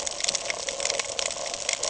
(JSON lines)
{"label": "ambient", "recorder": "HydroMoth"}